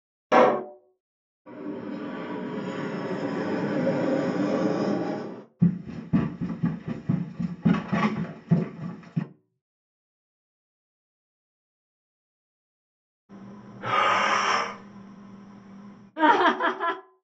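At the start, there is an explosion. Then, about 1 second in, a fixed-wing aircraft is audible. Afterwards, about 6 seconds in, someone runs. Later, about 13 seconds in, comes the sound of breathing. Finally, about 16 seconds in, laughter can be heard.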